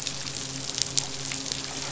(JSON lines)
{"label": "biophony, midshipman", "recorder": "SoundTrap 500"}